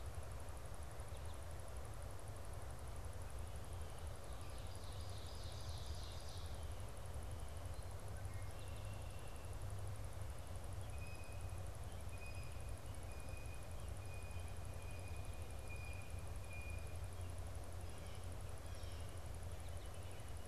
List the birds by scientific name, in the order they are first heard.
Seiurus aurocapilla, Agelaius phoeniceus, Cyanocitta cristata